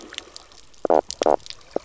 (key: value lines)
label: biophony, knock croak
recorder: SoundTrap 300